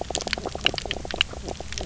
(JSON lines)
{"label": "biophony, knock croak", "recorder": "SoundTrap 300"}